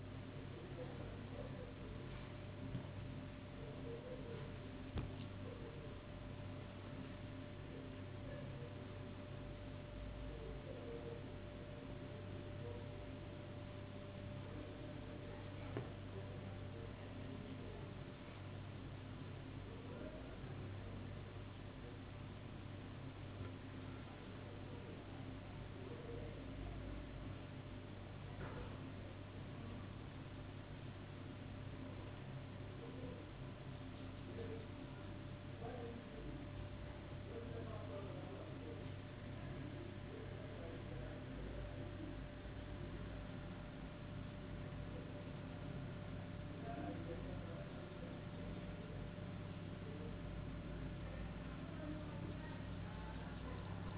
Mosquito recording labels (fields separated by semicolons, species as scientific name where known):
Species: no mosquito; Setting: insect culture